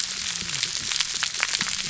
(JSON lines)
{"label": "biophony, whup", "recorder": "SoundTrap 300"}